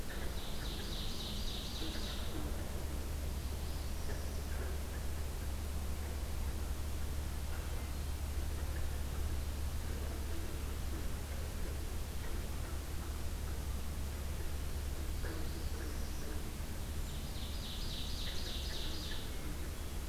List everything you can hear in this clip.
Ovenbird, Northern Parula, Hermit Thrush